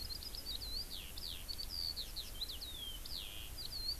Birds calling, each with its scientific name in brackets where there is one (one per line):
Eurasian Skylark (Alauda arvensis)